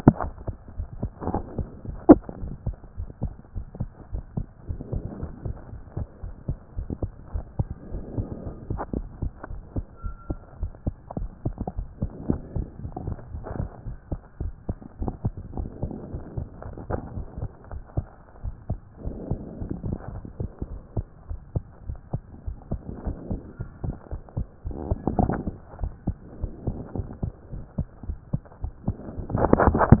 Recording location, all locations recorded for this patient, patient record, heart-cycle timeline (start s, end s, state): pulmonary valve (PV)
aortic valve (AV)+pulmonary valve (PV)+tricuspid valve (TV)+mitral valve (MV)
#Age: Child
#Sex: Male
#Height: 126.0 cm
#Weight: 15.1 kg
#Pregnancy status: False
#Murmur: Absent
#Murmur locations: nan
#Most audible location: nan
#Systolic murmur timing: nan
#Systolic murmur shape: nan
#Systolic murmur grading: nan
#Systolic murmur pitch: nan
#Systolic murmur quality: nan
#Diastolic murmur timing: nan
#Diastolic murmur shape: nan
#Diastolic murmur grading: nan
#Diastolic murmur pitch: nan
#Diastolic murmur quality: nan
#Outcome: Abnormal
#Campaign: 2014 screening campaign
0.00	0.22	diastole
0.22	0.32	S1
0.32	0.46	systole
0.46	0.56	S2
0.56	0.78	diastole
0.78	0.88	S1
0.88	1.00	systole
1.00	1.12	S2
1.12	1.26	diastole
1.26	1.44	S1
1.44	1.58	systole
1.58	1.70	S2
1.70	1.88	diastole
1.88	1.98	S1
1.98	2.06	systole
2.06	2.24	S2
2.24	2.40	diastole
2.40	2.54	S1
2.54	2.66	systole
2.66	2.76	S2
2.76	2.98	diastole
2.98	3.10	S1
3.10	3.24	systole
3.24	3.34	S2
3.34	3.56	diastole
3.56	3.66	S1
3.66	3.78	systole
3.78	3.90	S2
3.90	4.14	diastole
4.14	4.24	S1
4.24	4.38	systole
4.38	4.46	S2
4.46	4.68	diastole
4.68	4.78	S1
4.78	4.90	systole
4.90	5.04	S2
5.04	5.20	diastole
5.20	5.32	S1
5.32	5.44	systole
5.44	5.54	S2
5.54	5.74	diastole
5.74	5.82	S1
5.82	5.98	systole
5.98	6.08	S2
6.08	6.26	diastole
6.26	6.34	S1
6.34	6.50	systole
6.50	6.58	S2
6.58	6.76	diastole
6.76	6.88	S1
6.88	7.02	systole
7.02	7.12	S2
7.12	7.34	diastole
7.34	7.44	S1
7.44	7.58	systole
7.58	7.68	S2
7.68	7.92	diastole
7.92	8.04	S1
8.04	8.16	systole
8.16	8.30	S2
8.30	8.44	diastole
8.44	8.54	S1
8.54	8.68	systole
8.68	8.82	S2
8.82	8.94	diastole
8.94	9.08	S1
9.08	9.20	systole
9.20	9.32	S2
9.32	9.52	diastole
9.52	9.62	S1
9.62	9.76	systole
9.76	9.86	S2
9.86	10.04	diastole
10.04	10.16	S1
10.16	10.28	systole
10.28	10.38	S2
10.38	10.60	diastole
10.60	10.72	S1
10.72	10.86	systole
10.86	10.94	S2
10.94	11.18	diastole
11.18	11.30	S1
11.30	11.44	systole
11.44	11.58	S2
11.58	11.78	diastole
11.78	11.88	S1
11.88	12.00	systole
12.00	12.10	S2
12.10	12.26	diastole
12.26	12.42	S1
12.42	12.54	systole
12.54	12.68	S2
12.68	12.82	diastole
12.82	12.92	S1
12.92	13.02	systole
13.02	13.16	S2
13.16	13.32	diastole
13.32	13.44	S1
13.44	13.56	systole
13.56	13.70	S2
13.70	13.88	diastole
13.88	13.96	S1
13.96	14.10	systole
14.10	14.20	S2
14.20	14.40	diastole
14.40	14.54	S1
14.54	14.68	systole
14.68	14.78	S2
14.78	15.00	diastole
15.00	15.16	S1
15.16	15.24	systole
15.24	15.34	S2
15.34	15.54	diastole
15.54	15.68	S1
15.68	15.82	systole
15.82	15.92	S2
15.92	16.12	diastole
16.12	16.22	S1
16.22	16.36	systole
16.36	16.48	S2
16.48	16.66	diastole
16.66	16.74	S1
16.74	16.88	systole
16.88	17.02	S2
17.02	17.14	diastole
17.14	17.26	S1
17.26	17.38	systole
17.38	17.50	S2
17.50	17.74	diastole
17.74	17.82	S1
17.82	17.96	systole
17.96	18.10	S2
18.10	18.44	diastole
18.44	18.54	S1
18.54	18.68	systole
18.68	18.80	S2
18.80	19.04	diastole
19.04	19.18	S1
19.18	19.28	systole
19.28	19.40	S2
19.40	19.58	diastole
19.58	19.68	S1
19.68	19.82	systole
19.82	19.98	S2
19.98	20.12	diastole
20.12	20.22	S1
20.22	20.38	systole
20.38	20.52	S2
20.52	20.72	diastole
20.72	20.80	S1
20.80	20.96	systole
20.96	21.06	S2
21.06	21.30	diastole
21.30	21.38	S1
21.38	21.54	systole
21.54	21.64	S2
21.64	21.88	diastole
21.88	21.98	S1
21.98	22.12	systole
22.12	22.22	S2
22.22	22.46	diastole
22.46	22.56	S1
22.56	22.70	systole
22.70	22.82	S2
22.82	23.04	diastole
23.04	23.16	S1
23.16	23.28	systole
23.28	23.42	S2
23.42	23.60	diastole
23.60	23.68	S1
23.68	23.82	systole
23.82	23.96	S2
23.96	24.14	diastole
24.14	24.20	S1
24.20	24.38	systole
24.38	24.48	S2
24.48	24.66	diastole
24.66	24.74	S1
24.74	24.86	systole
24.86	25.00	S2
25.00	25.08	diastole
25.08	25.40	S1
25.40	25.46	systole
25.46	25.58	S2
25.58	25.82	diastole
25.82	25.94	S1
25.94	26.06	systole
26.06	26.16	S2
26.16	26.40	diastole
26.40	26.52	S1
26.52	26.66	systole
26.66	26.84	S2
26.84	26.96	diastole
26.96	27.08	S1
27.08	27.24	systole
27.24	27.32	S2
27.32	27.54	diastole
27.54	27.64	S1
27.64	27.76	systole
27.76	27.86	S2
27.86	28.08	diastole
28.08	28.18	S1
28.18	28.32	systole
28.32	28.42	S2
28.42	28.64	diastole
28.64	28.72	S1
28.72	28.86	systole
28.86	28.96	S2
28.96	29.16	diastole
29.16	29.24	S1
29.24	29.32	systole
29.32	29.52	S2
29.52	29.54	diastole
29.54	29.86	S1
29.86	29.92	systole
29.92	30.00	S2